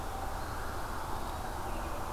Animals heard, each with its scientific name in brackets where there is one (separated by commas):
American Robin (Turdus migratorius), Eastern Wood-Pewee (Contopus virens)